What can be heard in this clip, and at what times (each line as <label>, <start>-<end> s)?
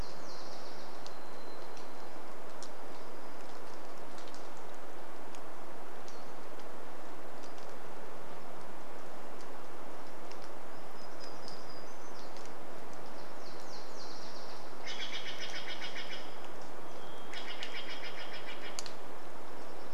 Nashville Warbler song, 0-2 s
warbler song, 0-2 s
Varied Thrush song, 0-4 s
rain, 0-20 s
Pacific-slope Flycatcher call, 6-8 s
Nashville Warbler song, 12-16 s
Steller's Jay call, 14-20 s
Varied Thrush song, 16-18 s
Dark-eyed Junco song, 18-20 s